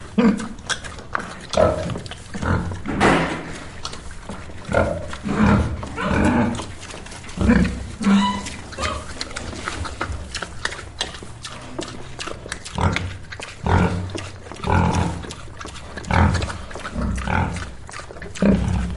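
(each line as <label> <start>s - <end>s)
A pig grunts once on a farm. 0.0s - 0.5s
Pigs are eating loudly on a farm. 0.0s - 19.0s
A pig grunts once on a farm. 1.5s - 2.7s
A door is slammed loudly. 2.9s - 3.6s
A pig grunts once on a farm. 4.7s - 6.7s
A pig grunts once on a farm. 7.3s - 7.9s
A chicken clucks once. 8.0s - 8.7s
A pig grunts once on a farm. 12.6s - 17.7s
A pig grunts once on a farm. 18.3s - 19.0s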